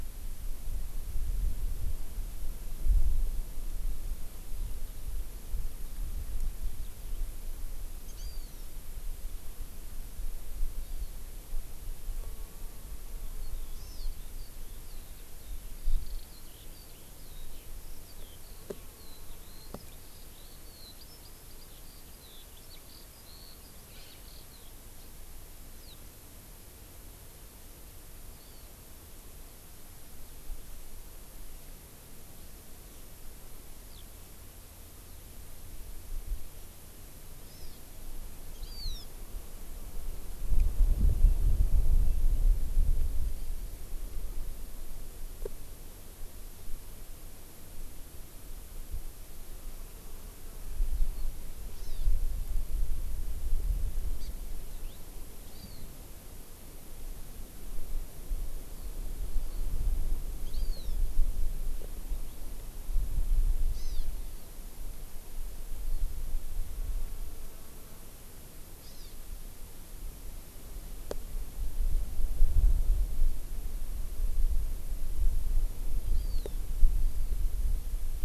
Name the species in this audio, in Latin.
Chlorodrepanis virens, Alauda arvensis, Haemorhous mexicanus